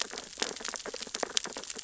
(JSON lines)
{"label": "biophony, sea urchins (Echinidae)", "recorder": "SoundTrap 600 or HydroMoth"}